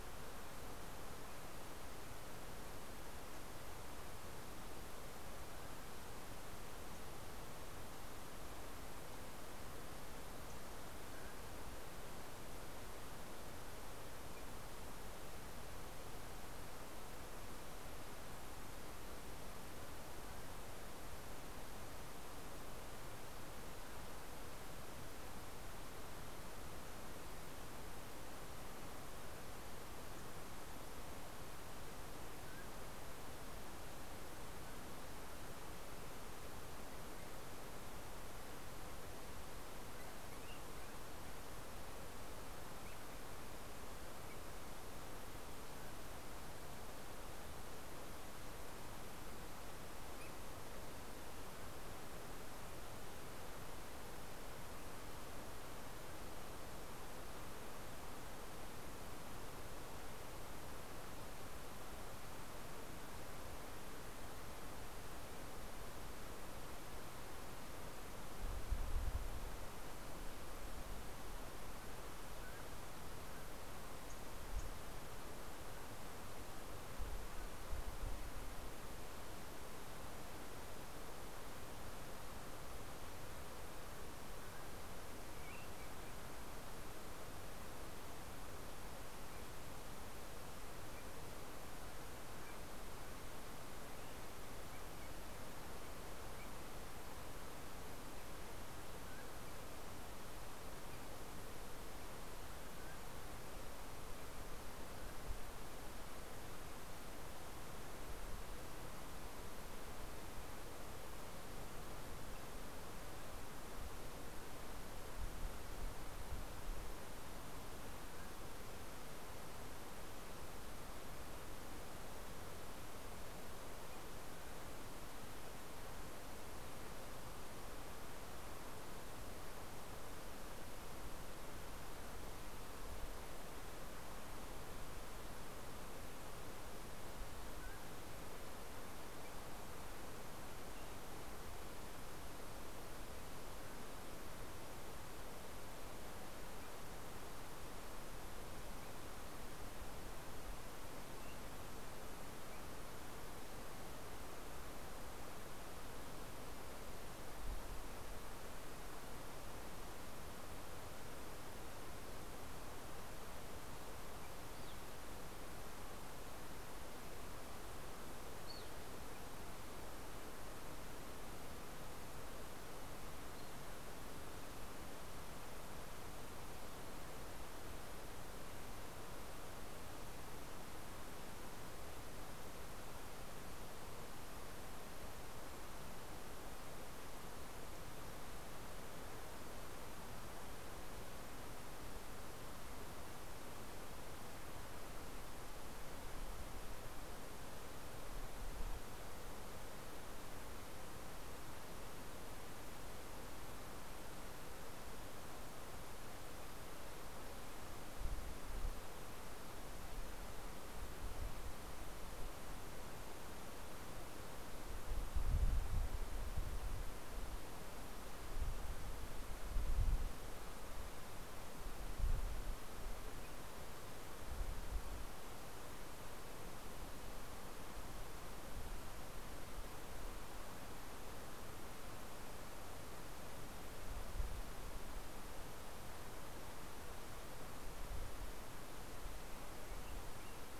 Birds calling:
Evening Grosbeak (Coccothraustes vespertinus)

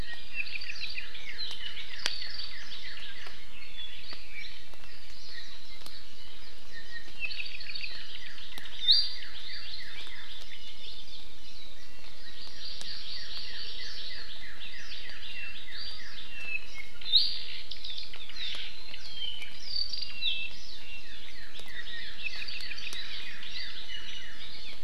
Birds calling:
Apapane (Himatione sanguinea), Hawaii Amakihi (Chlorodrepanis virens), Northern Cardinal (Cardinalis cardinalis), Iiwi (Drepanis coccinea)

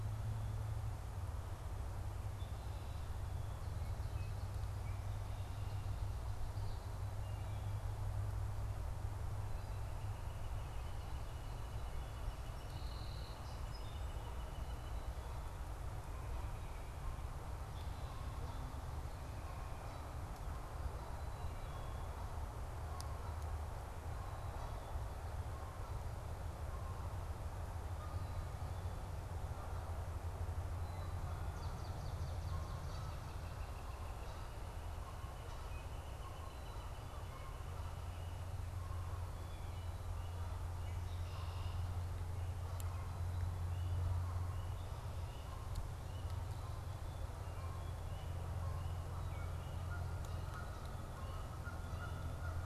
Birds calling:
Red-winged Blackbird (Agelaius phoeniceus), Swamp Sparrow (Melospiza georgiana), Song Sparrow (Melospiza melodia), Canada Goose (Branta canadensis), Northern Flicker (Colaptes auratus), Wood Thrush (Hylocichla mustelina)

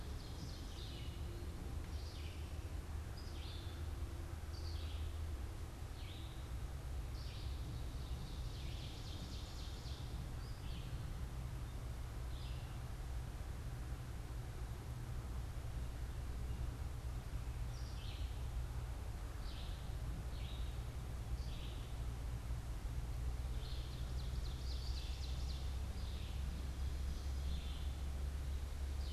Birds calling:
Ovenbird (Seiurus aurocapilla), Red-eyed Vireo (Vireo olivaceus)

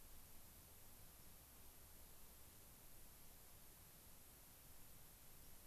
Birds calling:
White-crowned Sparrow (Zonotrichia leucophrys)

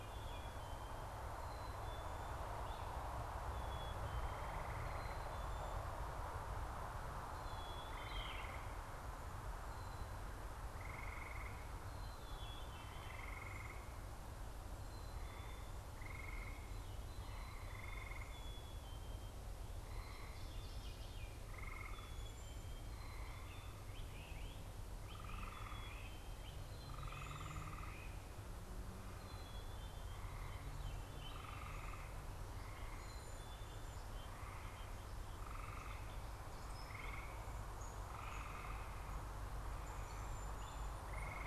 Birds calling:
Yellow-throated Vireo (Vireo flavifrons), Veery (Catharus fuscescens), Great Crested Flycatcher (Myiarchus crinitus), Cedar Waxwing (Bombycilla cedrorum), Black-capped Chickadee (Poecile atricapillus)

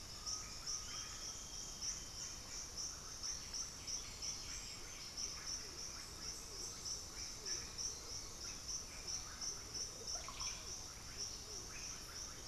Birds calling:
Chestnut-winged Foliage-gleaner (Dendroma erythroptera), Russet-backed Oropendola (Psarocolius angustifrons), Black-throated Antbird (Myrmophylax atrothorax), White-winged Becard (Pachyramphus polychopterus), Undulated Tinamou (Crypturellus undulatus), Horned Screamer (Anhima cornuta)

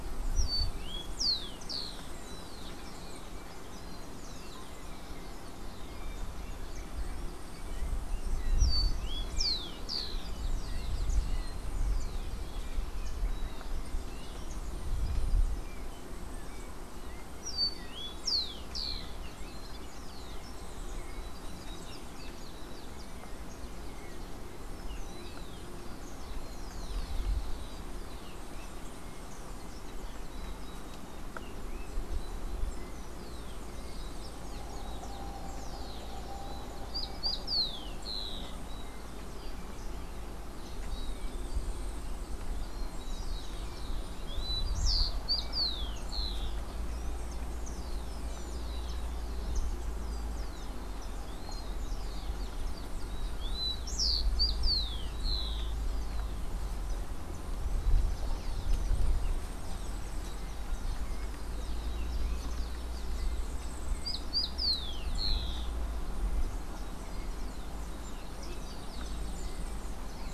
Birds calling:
Yellow-faced Grassquit (Tiaris olivaceus), Rufous-collared Sparrow (Zonotrichia capensis)

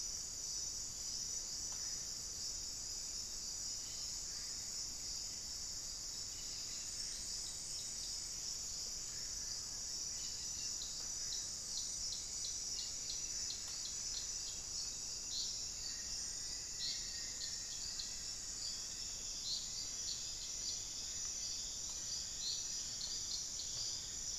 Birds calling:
Black-faced Antthrush (Formicarius analis), unidentified bird

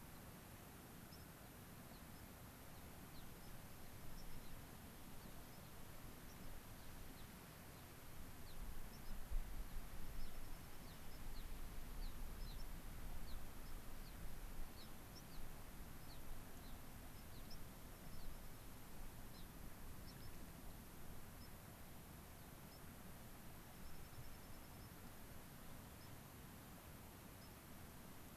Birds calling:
White-crowned Sparrow (Zonotrichia leucophrys), Dark-eyed Junco (Junco hyemalis), Gray-crowned Rosy-Finch (Leucosticte tephrocotis)

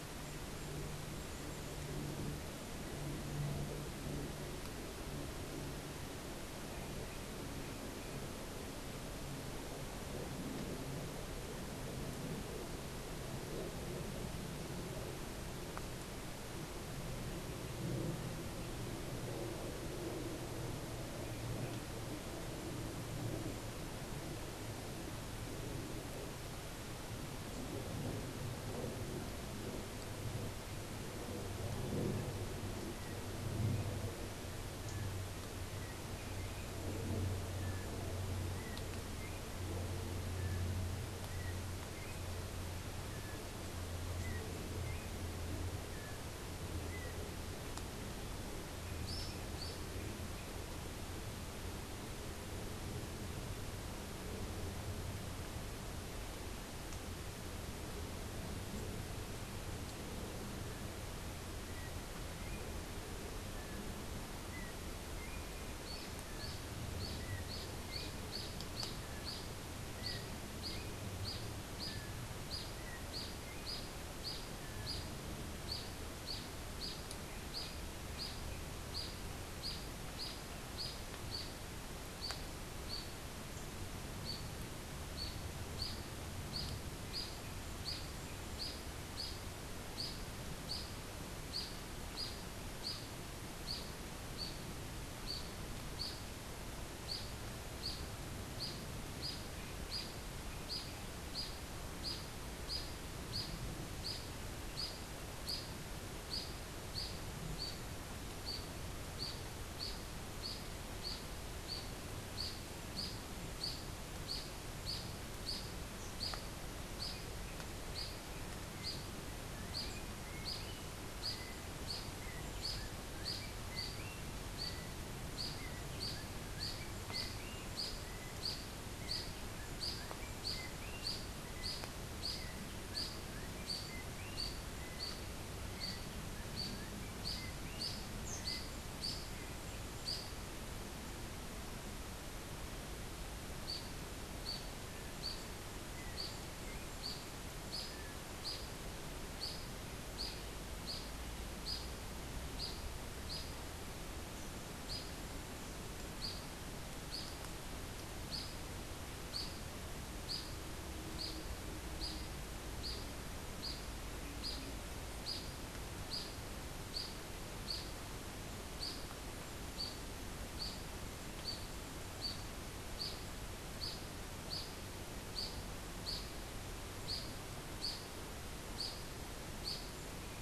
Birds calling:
Yellow-backed Oriole (Icterus chrysater), unidentified bird

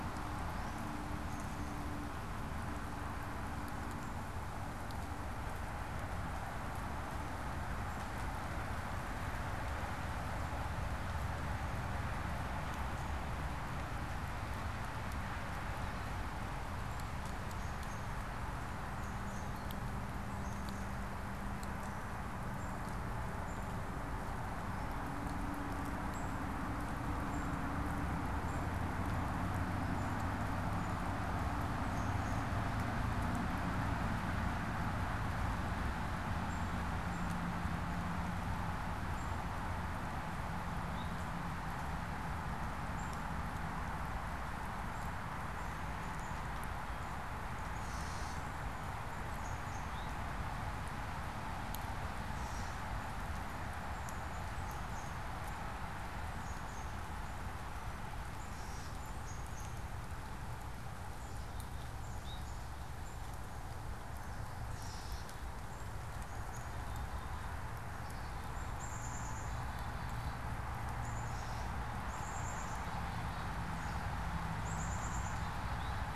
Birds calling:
Gray Catbird (Dumetella carolinensis), Black-capped Chickadee (Poecile atricapillus), unidentified bird

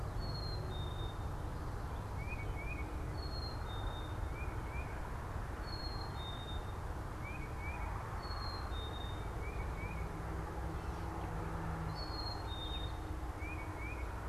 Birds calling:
Tufted Titmouse (Baeolophus bicolor), Black-capped Chickadee (Poecile atricapillus)

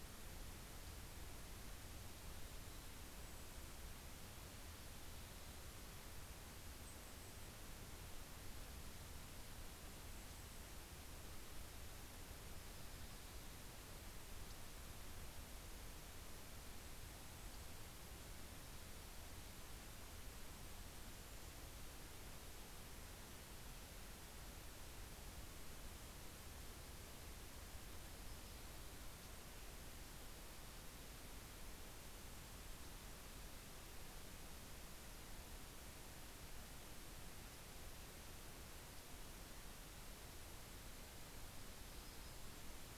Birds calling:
Golden-crowned Kinglet (Regulus satrapa), Yellow-rumped Warbler (Setophaga coronata), Mountain Chickadee (Poecile gambeli)

